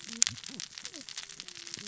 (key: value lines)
label: biophony, cascading saw
recorder: SoundTrap 600 or HydroMoth